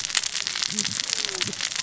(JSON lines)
{"label": "biophony, cascading saw", "recorder": "SoundTrap 600 or HydroMoth"}